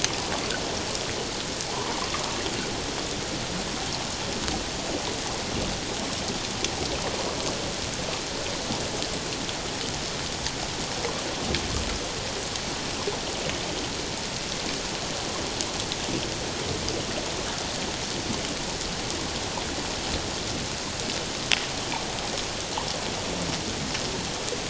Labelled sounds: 1.7	2.0	water noise, 0.88 to 1.2 kHz

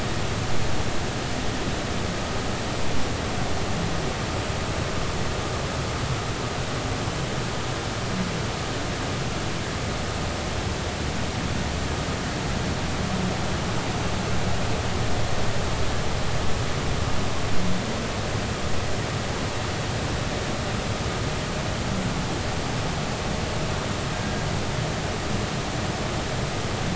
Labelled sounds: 24.2	24.5	humpback whale, 1.6 to 1.7 kHz

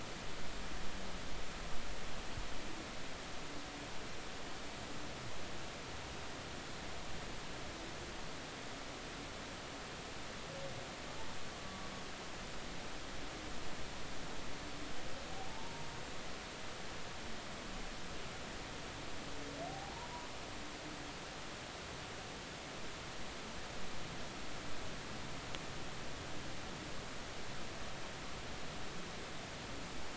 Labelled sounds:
15.5	15.9	humpback whale, 0.83 to 1.1 kHz
19.7	19.9	humpback whale, 0.80 to 0.86 kHz

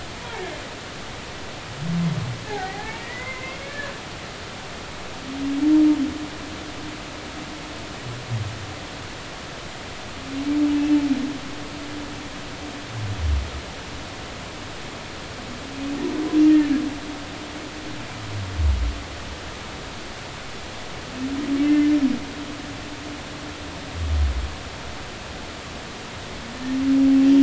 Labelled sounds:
2.4	3.9	humpback whale, 0.80 to 2.4 kHz
21.6	21.9	humpback whale, 1.7 to 2.7 kHz

